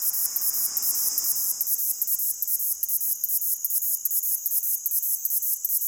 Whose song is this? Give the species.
Ducetia japonica